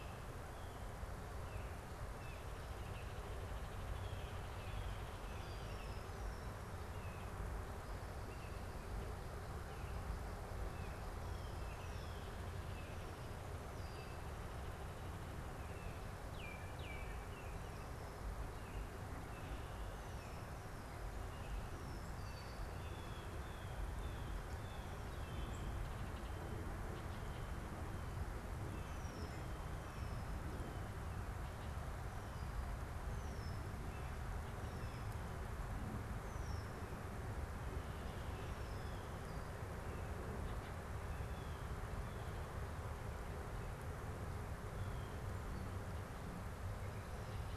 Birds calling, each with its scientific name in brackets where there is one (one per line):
Red-winged Blackbird (Agelaius phoeniceus)
Baltimore Oriole (Icterus galbula)
Blue Jay (Cyanocitta cristata)